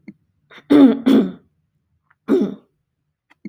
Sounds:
Throat clearing